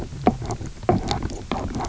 {"label": "biophony, knock croak", "recorder": "SoundTrap 300"}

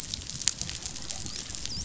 {"label": "biophony, dolphin", "recorder": "SoundTrap 500"}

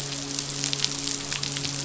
{"label": "biophony, midshipman", "recorder": "SoundTrap 500"}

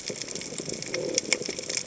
{"label": "biophony", "recorder": "HydroMoth"}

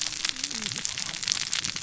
{"label": "biophony, cascading saw", "recorder": "SoundTrap 600 or HydroMoth"}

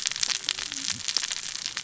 {"label": "biophony, cascading saw", "recorder": "SoundTrap 600 or HydroMoth"}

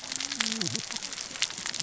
{"label": "biophony, cascading saw", "recorder": "SoundTrap 600 or HydroMoth"}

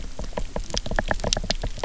{"label": "biophony, knock", "recorder": "SoundTrap 300"}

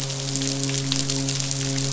{"label": "biophony, midshipman", "recorder": "SoundTrap 500"}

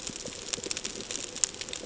{"label": "ambient", "recorder": "HydroMoth"}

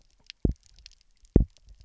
{"label": "biophony, double pulse", "recorder": "SoundTrap 300"}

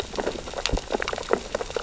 {"label": "biophony, sea urchins (Echinidae)", "recorder": "SoundTrap 600 or HydroMoth"}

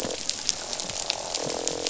{"label": "biophony, croak", "recorder": "SoundTrap 500"}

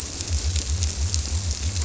{"label": "biophony", "recorder": "SoundTrap 300"}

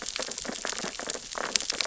{"label": "biophony, sea urchins (Echinidae)", "recorder": "SoundTrap 600 or HydroMoth"}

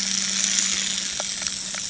{"label": "anthrophony, boat engine", "recorder": "HydroMoth"}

